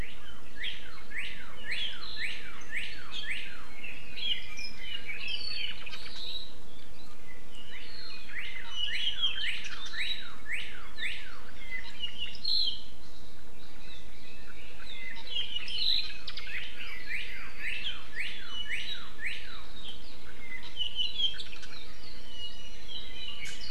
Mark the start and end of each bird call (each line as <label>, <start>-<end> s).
Northern Cardinal (Cardinalis cardinalis), 0.0-3.7 s
Red-billed Leiothrix (Leiothrix lutea), 3.7-5.8 s
Northern Cardinal (Cardinalis cardinalis), 7.5-11.4 s
Northern Cardinal (Cardinalis cardinalis), 14.8-20.0 s
Apapane (Himatione sanguinea), 22.3-23.7 s